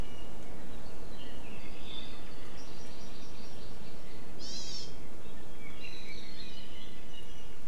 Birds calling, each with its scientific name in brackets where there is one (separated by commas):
Apapane (Himatione sanguinea), Hawaii Amakihi (Chlorodrepanis virens)